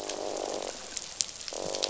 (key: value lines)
label: biophony, croak
recorder: SoundTrap 500